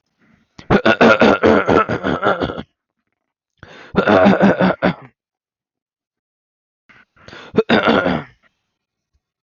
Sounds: Throat clearing